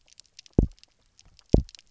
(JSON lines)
{"label": "biophony, double pulse", "recorder": "SoundTrap 300"}